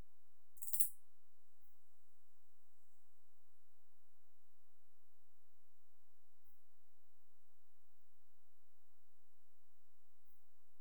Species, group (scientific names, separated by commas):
Parasteropleurus martorellii, Orthoptera